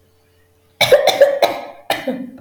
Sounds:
Cough